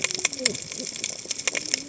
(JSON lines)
{"label": "biophony, cascading saw", "recorder": "HydroMoth"}